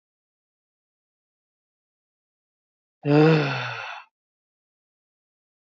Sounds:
Sigh